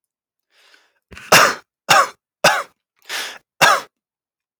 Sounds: Cough